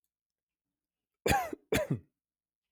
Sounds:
Cough